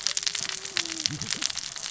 {"label": "biophony, cascading saw", "recorder": "SoundTrap 600 or HydroMoth"}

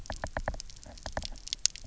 {"label": "biophony, knock", "recorder": "SoundTrap 300"}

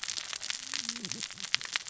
{"label": "biophony, cascading saw", "recorder": "SoundTrap 600 or HydroMoth"}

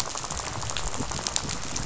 {"label": "biophony, rattle", "recorder": "SoundTrap 500"}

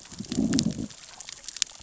{"label": "biophony, growl", "recorder": "SoundTrap 600 or HydroMoth"}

